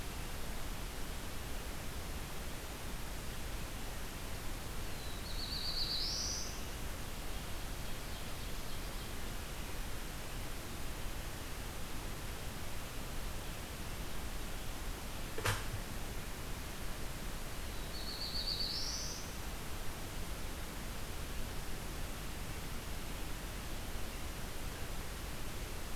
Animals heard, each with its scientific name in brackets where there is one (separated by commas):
Ovenbird (Seiurus aurocapilla), Black-throated Blue Warbler (Setophaga caerulescens)